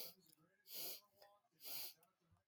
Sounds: Sniff